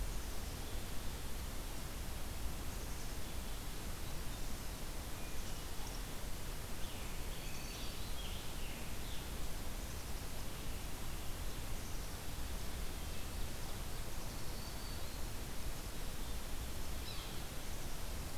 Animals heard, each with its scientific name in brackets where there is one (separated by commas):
Black-capped Chickadee (Poecile atricapillus), Yellow-bellied Sapsucker (Sphyrapicus varius), Scarlet Tanager (Piranga olivacea), Black-throated Green Warbler (Setophaga virens)